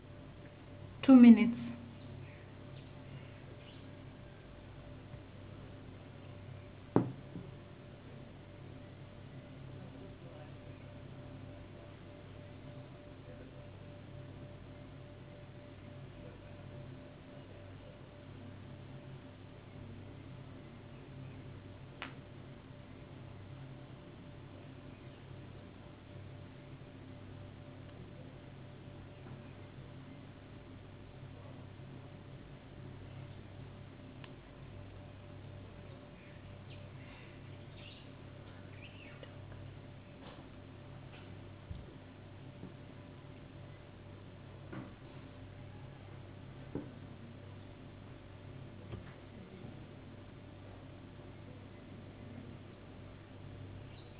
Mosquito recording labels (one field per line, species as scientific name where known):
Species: no mosquito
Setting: insect culture